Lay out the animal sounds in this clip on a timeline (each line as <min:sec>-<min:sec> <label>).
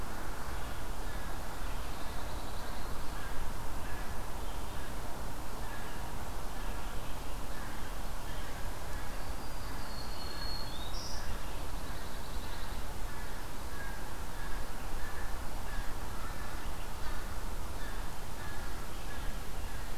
0:01.7-0:03.1 Pine Warbler (Setophaga pinus)
0:03.0-0:09.1 American Crow (Corvus brachyrhynchos)
0:09.0-0:11.6 Black-throated Green Warbler (Setophaga virens)
0:11.5-0:12.9 Pine Warbler (Setophaga pinus)
0:13.8-0:20.0 American Crow (Corvus brachyrhynchos)